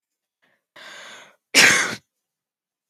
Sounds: Sneeze